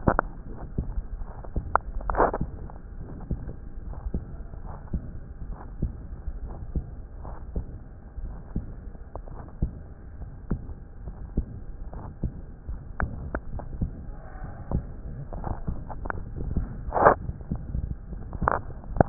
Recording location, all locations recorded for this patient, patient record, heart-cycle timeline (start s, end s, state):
pulmonary valve (PV)
aortic valve (AV)+pulmonary valve (PV)+tricuspid valve (TV)+mitral valve (MV)
#Age: Adolescent
#Sex: Male
#Height: 162.0 cm
#Weight: 47.4 kg
#Pregnancy status: False
#Murmur: Present
#Murmur locations: aortic valve (AV)+mitral valve (MV)+pulmonary valve (PV)+tricuspid valve (TV)
#Most audible location: mitral valve (MV)
#Systolic murmur timing: Early-systolic
#Systolic murmur shape: Decrescendo
#Systolic murmur grading: II/VI
#Systolic murmur pitch: Medium
#Systolic murmur quality: Harsh
#Diastolic murmur timing: Early-diastolic
#Diastolic murmur shape: Decrescendo
#Diastolic murmur grading: II/IV
#Diastolic murmur pitch: Medium
#Diastolic murmur quality: Blowing
#Outcome: Abnormal
#Campaign: 2014 screening campaign
0.00	0.20	S1
0.20	0.44	systole
0.44	0.56	S2
0.56	1.12	diastole
1.12	1.28	S1
1.28	1.48	systole
1.48	1.64	S2
1.64	2.08	diastole
2.08	2.26	S1
2.26	2.38	systole
2.38	2.50	S2
2.50	3.00	diastole
3.00	3.10	S1
3.10	3.28	systole
3.28	3.40	S2
3.40	3.86	diastole
3.86	3.96	S1
3.96	4.12	systole
4.12	4.24	S2
4.24	4.64	diastole
4.64	4.74	S1
4.74	4.90	systole
4.90	5.02	S2
5.02	5.46	diastole
5.46	5.56	S1
5.56	5.82	systole
5.82	5.96	S2
5.96	6.40	diastole
6.40	6.52	S1
6.52	6.72	systole
6.72	6.88	S2
6.88	7.26	diastole
7.26	7.36	S1
7.36	7.52	systole
7.52	7.66	S2
7.66	8.22	diastole
8.22	8.36	S1
8.36	8.52	systole
8.52	8.66	S2
8.66	9.26	diastole
9.26	9.36	S1
9.36	9.58	systole
9.58	9.74	S2
9.74	10.22	diastole
10.22	10.32	S1
10.32	10.50	systole
10.50	10.60	S2
10.60	11.06	diastole
11.06	11.14	S1
11.14	11.34	systole
11.34	11.50	S2
11.50	11.94	diastole
11.94	12.04	S1
12.04	12.22	systole
12.22	12.32	S2
12.32	12.70	diastole
12.70	12.80	S1
12.80	13.00	systole
13.00	13.14	S2
13.14	13.54	diastole
13.54	13.66	S1
13.66	13.80	systole
13.80	13.94	S2
13.94	14.44	diastole
14.44	14.54	S1
14.54	14.72	systole
14.72	14.86	S2
14.86	15.32	diastole
15.32	15.44	S1
15.44	15.66	systole
15.66	15.78	S2
15.78	16.16	diastole
16.16	16.26	S1
16.26	16.48	systole
16.48	16.64	S2
16.64	17.02	diastole
17.02	17.20	S1
17.20	17.46	systole
17.46	17.62	S2
17.62	18.10	diastole
18.10	18.22	S1
18.22	18.40	systole
18.40	18.52	S2
18.52	18.90	diastole
18.90	19.08	S1
19.08	19.09	systole